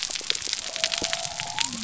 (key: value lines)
label: biophony
recorder: SoundTrap 300